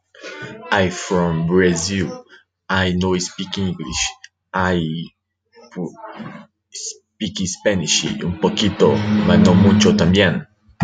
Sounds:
Throat clearing